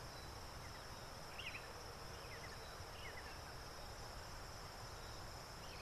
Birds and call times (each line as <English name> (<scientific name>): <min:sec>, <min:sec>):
Sombre Greenbul (Andropadus importunus): 0:01.5